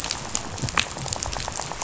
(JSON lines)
{"label": "biophony, rattle", "recorder": "SoundTrap 500"}